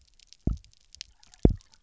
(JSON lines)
{"label": "biophony, double pulse", "recorder": "SoundTrap 300"}